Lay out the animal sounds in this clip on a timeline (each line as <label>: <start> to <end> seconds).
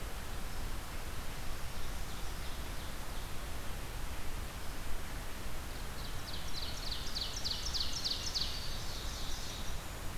Ovenbird (Seiurus aurocapilla): 5.8 to 9.8 seconds
Winter Wren (Troglodytes hiemalis): 7.1 to 10.2 seconds